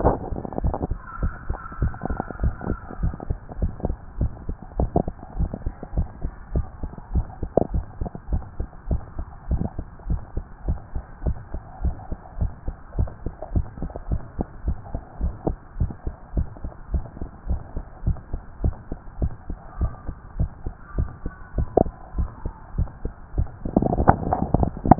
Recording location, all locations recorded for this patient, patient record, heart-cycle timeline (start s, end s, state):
mitral valve (MV)
aortic valve (AV)+pulmonary valve (PV)+tricuspid valve (TV)+mitral valve (MV)
#Age: Child
#Sex: Female
#Height: 137.0 cm
#Weight: 28.2 kg
#Pregnancy status: False
#Murmur: Absent
#Murmur locations: nan
#Most audible location: nan
#Systolic murmur timing: nan
#Systolic murmur shape: nan
#Systolic murmur grading: nan
#Systolic murmur pitch: nan
#Systolic murmur quality: nan
#Diastolic murmur timing: nan
#Diastolic murmur shape: nan
#Diastolic murmur grading: nan
#Diastolic murmur pitch: nan
#Diastolic murmur quality: nan
#Outcome: Abnormal
#Campaign: 2015 screening campaign
0.00	8.27	unannotated
8.27	8.44	S1
8.44	8.56	systole
8.56	8.68	S2
8.68	8.88	diastole
8.88	9.02	S1
9.02	9.16	systole
9.16	9.28	S2
9.28	9.48	diastole
9.48	9.62	S1
9.62	9.75	systole
9.75	9.86	S2
9.86	10.05	diastole
10.05	10.22	S1
10.22	10.31	systole
10.31	10.44	S2
10.44	10.63	diastole
10.63	10.80	S1
10.80	10.92	systole
10.92	11.02	S2
11.02	11.22	diastole
11.22	11.38	S1
11.38	11.51	systole
11.51	11.62	S2
11.62	11.82	diastole
11.82	11.96	S1
11.96	12.07	systole
12.07	12.20	S2
12.20	12.34	diastole
12.34	12.52	S1
12.52	12.63	systole
12.63	12.76	S2
12.76	12.93	diastole
12.93	13.10	S1
13.10	13.23	systole
13.23	13.34	S2
13.34	13.51	diastole
13.51	13.68	S1
13.68	13.78	systole
13.78	13.90	S2
13.90	14.08	diastole
14.08	14.20	S1
14.20	14.36	systole
14.36	14.46	S2
14.46	14.61	diastole
14.61	14.76	S1
14.76	14.91	systole
14.91	15.02	S2
15.02	15.17	diastole
15.17	15.34	S1
15.34	15.45	systole
15.45	15.58	S2
15.58	15.75	diastole
15.75	15.90	S1
15.90	16.02	systole
16.02	16.16	S2
16.16	16.31	diastole
16.31	16.48	S1
16.48	16.61	systole
16.61	16.72	S2
16.72	16.89	diastole
16.89	17.06	S1
17.06	17.18	systole
17.18	17.28	S2
17.28	17.44	diastole
17.44	17.60	S1
17.60	17.73	systole
17.73	17.84	S2
17.84	18.01	diastole
18.01	18.18	S1
18.18	18.29	systole
18.29	18.42	S2
18.42	18.60	diastole
18.60	18.76	S1
18.76	18.87	systole
18.87	19.00	S2
19.00	19.17	diastole
19.17	19.34	S1
19.34	19.47	systole
19.47	19.60	S2
19.60	19.74	diastole
19.74	19.92	S1
19.92	20.03	systole
20.03	20.16	S2
20.16	20.33	diastole
20.33	20.52	S1
20.52	20.62	systole
20.62	20.76	S2
20.76	20.92	diastole
20.92	21.10	S1
21.10	21.22	systole
21.22	21.34	S2
21.34	24.99	unannotated